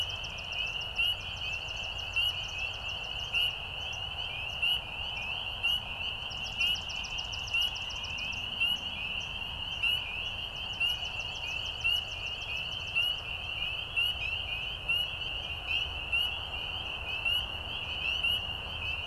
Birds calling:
Swamp Sparrow (Melospiza georgiana)

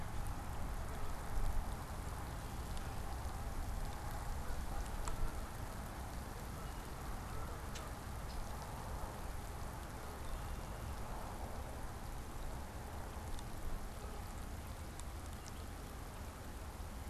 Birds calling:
Common Grackle (Quiscalus quiscula), Canada Goose (Branta canadensis)

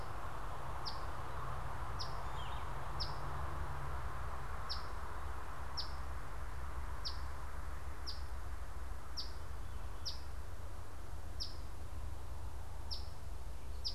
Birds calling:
Yellow-throated Vireo (Vireo flavifrons), Eastern Phoebe (Sayornis phoebe)

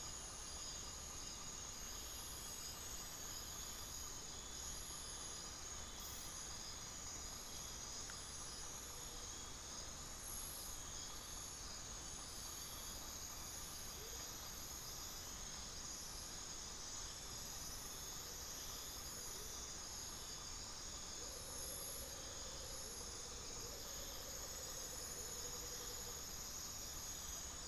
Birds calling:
unidentified bird, Amazonian Motmot (Momotus momota)

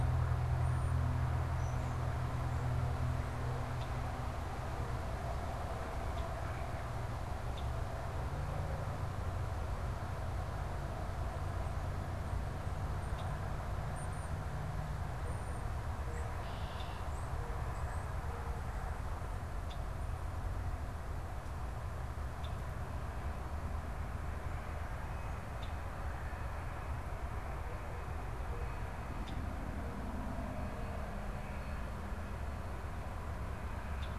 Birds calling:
European Starling (Sturnus vulgaris), Red-winged Blackbird (Agelaius phoeniceus)

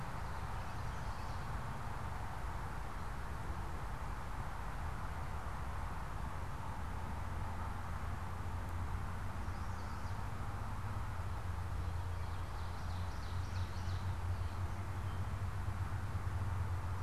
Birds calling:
Chestnut-sided Warbler (Setophaga pensylvanica), Ovenbird (Seiurus aurocapilla), Common Yellowthroat (Geothlypis trichas)

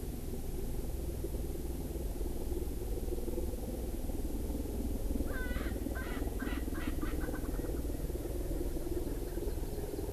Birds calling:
Erckel's Francolin (Pternistis erckelii)

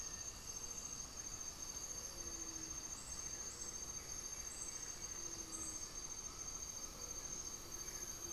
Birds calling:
Gray-fronted Dove (Leptotila rufaxilla), Black-faced Antthrush (Formicarius analis), Blue-gray Saltator (Saltator coerulescens)

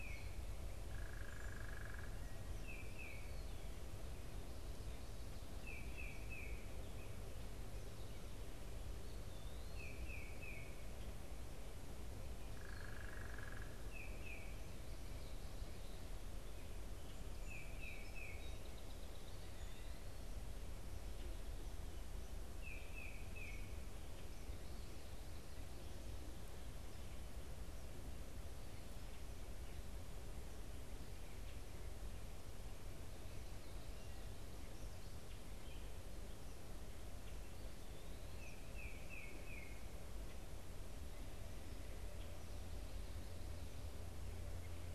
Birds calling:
Eastern Wood-Pewee (Contopus virens), unidentified bird, Tufted Titmouse (Baeolophus bicolor), Song Sparrow (Melospiza melodia)

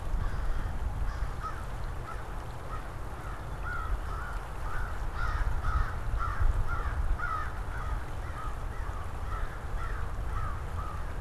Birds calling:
American Crow (Corvus brachyrhynchos), Black-capped Chickadee (Poecile atricapillus)

